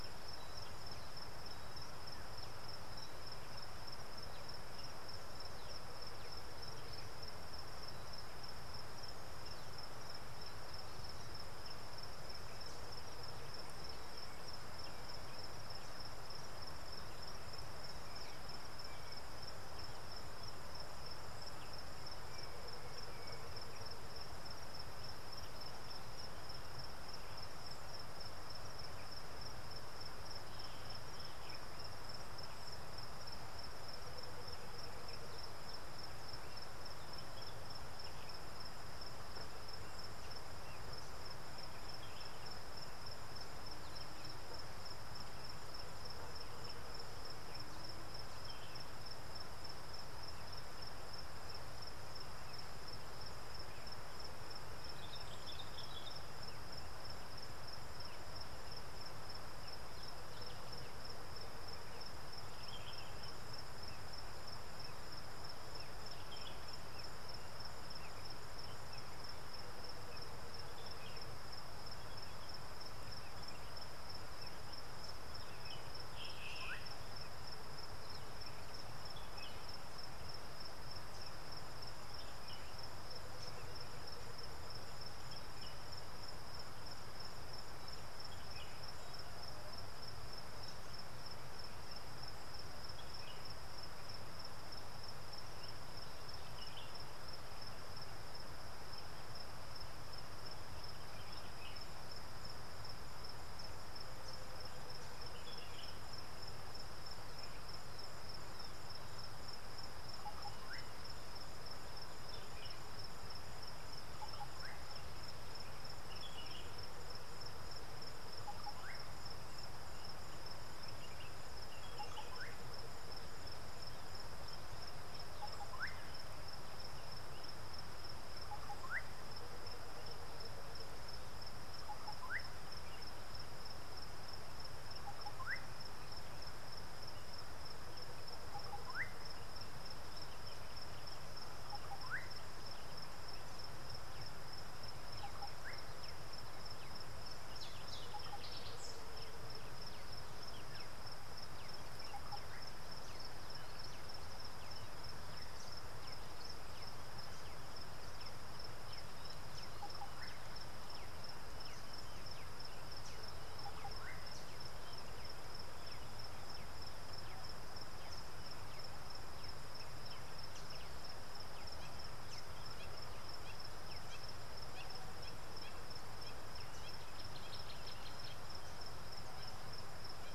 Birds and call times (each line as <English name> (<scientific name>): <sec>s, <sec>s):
Common Bulbul (Pycnonotus barbatus): 55.5s
Slate-colored Boubou (Laniarius funebris): 76.5s, 118.7s, 128.7s, 135.4s, 142.1s
White-browed Coucal (Centropus superciliosus): 84.0s
Hamerkop (Scopus umbretta): 175.7s